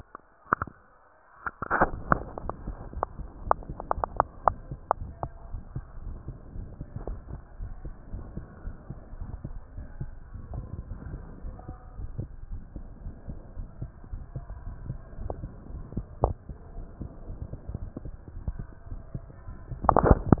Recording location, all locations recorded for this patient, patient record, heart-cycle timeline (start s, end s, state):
aortic valve (AV)
aortic valve (AV)+pulmonary valve (PV)+tricuspid valve (TV)+mitral valve (MV)
#Age: nan
#Sex: Female
#Height: nan
#Weight: nan
#Pregnancy status: True
#Murmur: Absent
#Murmur locations: nan
#Most audible location: nan
#Systolic murmur timing: nan
#Systolic murmur shape: nan
#Systolic murmur grading: nan
#Systolic murmur pitch: nan
#Systolic murmur quality: nan
#Diastolic murmur timing: nan
#Diastolic murmur shape: nan
#Diastolic murmur grading: nan
#Diastolic murmur pitch: nan
#Diastolic murmur quality: nan
#Outcome: Normal
#Campaign: 2015 screening campaign
0.00	5.90	unannotated
5.90	6.06	diastole
6.06	6.18	S1
6.18	6.28	systole
6.28	6.36	S2
6.36	6.56	diastole
6.56	6.70	S1
6.70	6.76	systole
6.76	6.86	S2
6.86	7.06	diastole
7.06	7.20	S1
7.20	7.30	systole
7.30	7.40	S2
7.40	7.60	diastole
7.60	7.74	S1
7.74	7.84	systole
7.84	7.94	S2
7.94	8.12	diastole
8.12	8.24	S1
8.24	8.36	systole
8.36	8.46	S2
8.46	8.66	diastole
8.66	8.76	S1
8.76	8.88	systole
8.88	8.98	S2
8.98	9.19	diastole
9.19	9.33	S1
9.33	9.43	systole
9.43	9.50	S2
9.50	9.76	diastole
9.76	9.88	S1
9.88	9.98	systole
9.98	10.10	S2
10.10	10.32	diastole
10.32	10.42	S1
10.42	10.52	systole
10.52	10.68	S2
10.68	10.90	diastole
10.90	11.00	S1
11.00	11.10	systole
11.10	11.22	S2
11.22	11.44	diastole
11.44	11.58	S1
11.58	11.68	systole
11.68	11.76	S2
11.76	11.96	diastole
11.96	12.08	S1
12.08	12.16	systole
12.16	12.28	S2
12.28	12.50	diastole
12.50	12.62	S1
12.62	12.74	systole
12.74	12.84	S2
12.84	13.04	diastole
13.04	13.18	S1
13.18	13.30	systole
13.30	13.38	S2
13.38	13.58	diastole
13.58	13.68	S1
13.68	13.80	systole
13.80	13.90	S2
13.90	14.12	diastole
14.12	14.22	S1
14.22	14.34	systole
14.34	14.44	S2
14.44	14.64	diastole
14.64	14.76	S1
14.76	14.88	systole
14.88	14.98	S2
14.98	15.20	diastole
15.20	15.34	S1
15.34	15.42	systole
15.42	15.52	S2
15.52	15.72	diastole
15.72	15.84	S1
15.84	15.94	systole
15.94	16.04	S2
16.04	16.20	diastole
16.20	16.36	S1
16.36	16.48	systole
16.48	16.56	S2
16.56	16.76	diastole
16.76	16.88	S1
16.88	17.02	systole
17.02	17.12	S2
17.12	17.28	diastole
17.28	17.38	S1
17.38	17.48	systole
17.48	17.58	S2
17.58	17.79	diastole
17.79	17.91	S1
17.91	18.04	systole
18.04	18.12	S2
18.12	18.32	diastole
18.32	18.44	S1
18.44	18.58	systole
18.58	18.66	S2
18.66	18.90	diastole
18.90	18.98	S1
18.98	20.40	unannotated